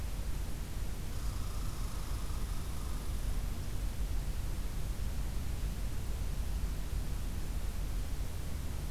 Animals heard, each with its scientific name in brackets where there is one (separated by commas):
Red Squirrel (Tamiasciurus hudsonicus)